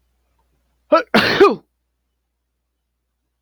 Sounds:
Sneeze